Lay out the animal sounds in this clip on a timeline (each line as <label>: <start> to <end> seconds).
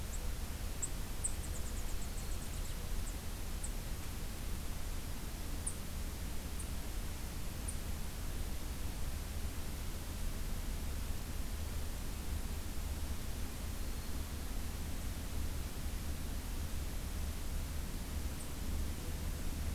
unidentified call: 0.0 to 7.8 seconds
Black-throated Green Warbler (Setophaga virens): 1.9 to 2.5 seconds
Black-throated Green Warbler (Setophaga virens): 13.7 to 14.3 seconds